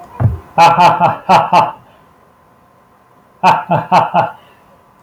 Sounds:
Laughter